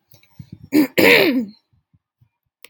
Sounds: Throat clearing